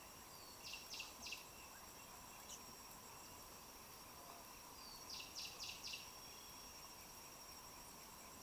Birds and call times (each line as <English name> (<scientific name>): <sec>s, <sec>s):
Cinnamon Bracken-Warbler (Bradypterus cinnamomeus): 5.5s
Chestnut-throated Apalis (Apalis porphyrolaema): 6.2s